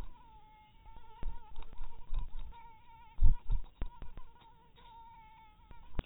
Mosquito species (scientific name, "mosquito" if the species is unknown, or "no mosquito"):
mosquito